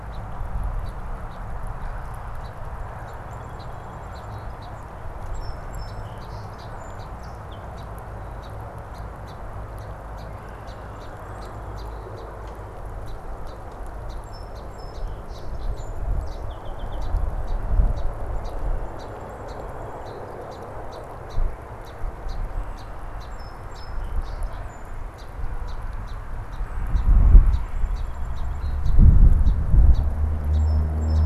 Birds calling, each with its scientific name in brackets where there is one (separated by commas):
Red-winged Blackbird (Agelaius phoeniceus), Song Sparrow (Melospiza melodia)